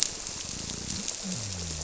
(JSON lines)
{"label": "biophony", "recorder": "SoundTrap 300"}